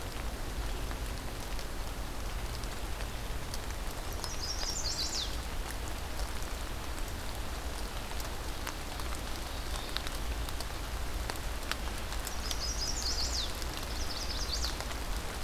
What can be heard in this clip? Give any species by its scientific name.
Setophaga pensylvanica